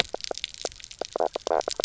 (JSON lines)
{"label": "biophony, knock croak", "recorder": "SoundTrap 300"}